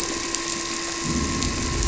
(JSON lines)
{"label": "anthrophony, boat engine", "recorder": "SoundTrap 300"}